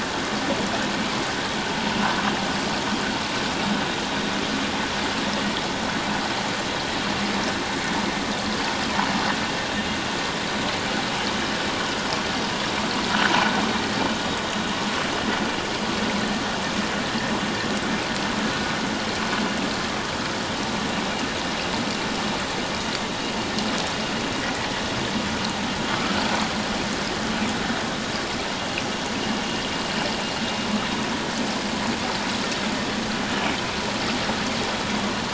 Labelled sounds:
25.9	26.1	vessel noise, 1.1 to 1.4 kHz

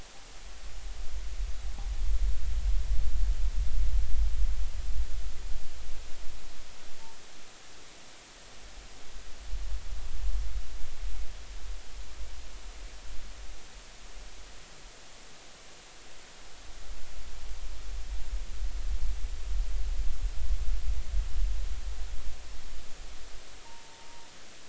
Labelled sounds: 23.6	24.3	humpback whale, 0.83 to 0.99 kHz

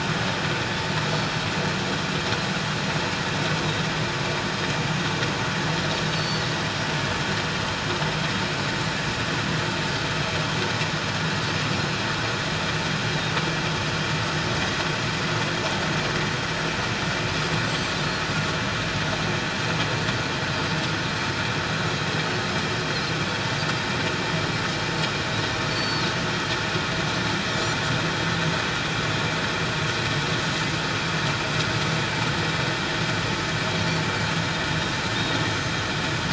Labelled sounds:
6.1	6.5	Pacific white-sided dolphin, 4.2 to 7.7 kHz
17.7	17.9	Pacific white-sided dolphin, 7.2 to 7.7 kHz
25.7	26.0	Pacific white-sided dolphin, 4.3 to 7.5 kHz
35.1	35.5	Pacific white-sided dolphin, 3.5 to 3.8 kHz

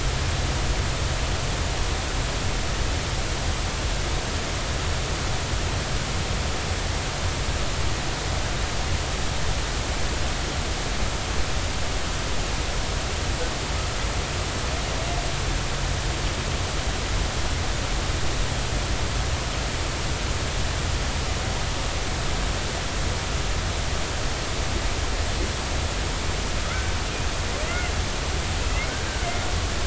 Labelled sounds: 26.7	26.9	killer whale, Bigg's (transient), 1.2 to 1.6 kHz
27.7	27.9	killer whale, Bigg's (transient), 2.0 to 2.2 kHz

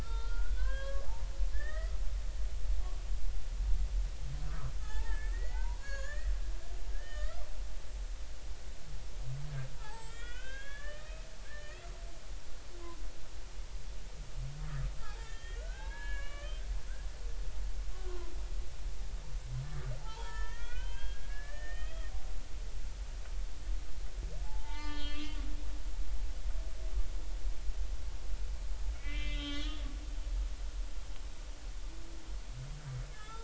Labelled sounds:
0.0	1.0	humpback whale, 0.96 to 4.2 kHz
1.5	1.9	humpback whale, 1.1 to 2.0 kHz
4.5	6.3	humpback whale, 0.80 to 7.1 kHz
6.9	7.4	humpback whale, 1.1 to 3.1 kHz
9.7	11.9	humpback whale, 0.80 to 4.7 kHz
15.0	16.6	humpback whale, 0.80 to 3.5 kHz
17.9	18.3	humpback whale, 0.96 to 1.2 kHz
20.0	22.1	humpback whale, 0.80 to 3.5 kHz
24.4	25.4	humpback whale, 0.80 to 4.5 kHz
28.9	29.9	humpback whale, 1.1 to 4.3 kHz
33.1	33.4	humpback whale, 1.2 to 3.7 kHz

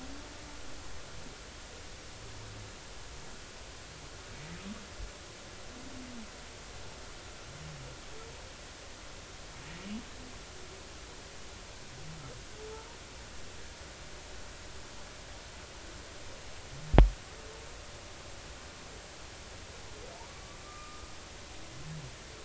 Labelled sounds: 20.3	21.1	humpback whale, 1.1 to 1.3 kHz

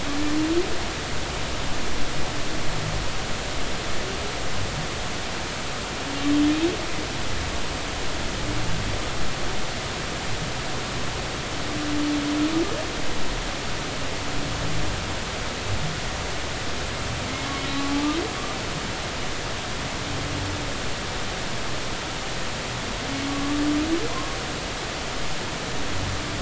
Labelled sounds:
17.7	18.1	humpback whale, 0.80 to 1.2 kHz

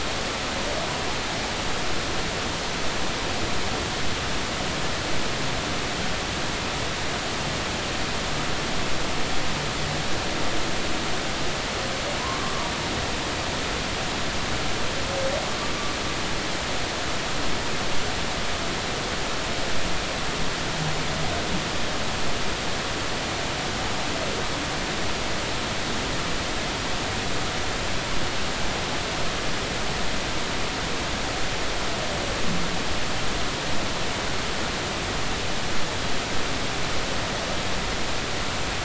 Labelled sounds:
12.2	12.7	humpback whale, 0.86 to 1.2 kHz

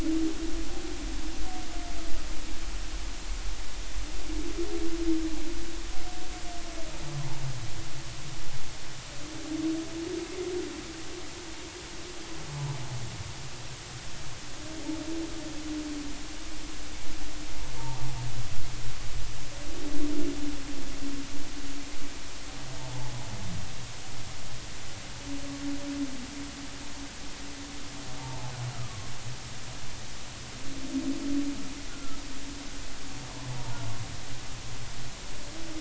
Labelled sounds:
28.2	29.1	humpback whale, 0.80 to 1.4 kHz
32.9	33.8	humpback whale, 0.86 to 1.5 kHz

